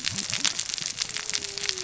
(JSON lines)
{"label": "biophony, cascading saw", "recorder": "SoundTrap 600 or HydroMoth"}